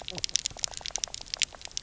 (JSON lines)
{"label": "biophony, knock croak", "recorder": "SoundTrap 300"}